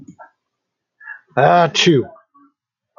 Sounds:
Sneeze